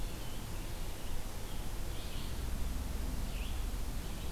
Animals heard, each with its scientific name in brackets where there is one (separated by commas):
Red-eyed Vireo (Vireo olivaceus)